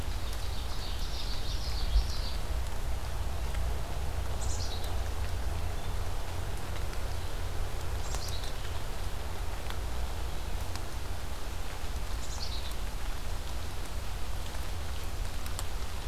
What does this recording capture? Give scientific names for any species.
Seiurus aurocapilla, Geothlypis trichas, Poecile atricapillus